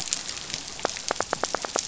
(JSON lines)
{"label": "biophony, knock", "recorder": "SoundTrap 500"}